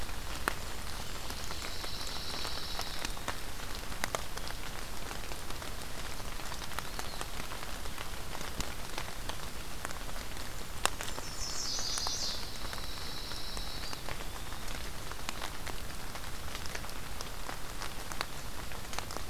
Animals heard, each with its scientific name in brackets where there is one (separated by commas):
Pine Warbler (Setophaga pinus), Chestnut-sided Warbler (Setophaga pensylvanica), Eastern Wood-Pewee (Contopus virens), Blackburnian Warbler (Setophaga fusca)